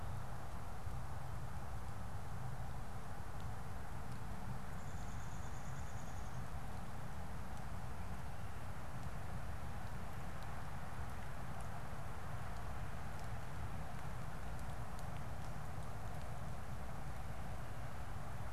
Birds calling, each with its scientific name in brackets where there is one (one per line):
Downy Woodpecker (Dryobates pubescens)